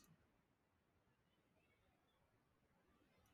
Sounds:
Throat clearing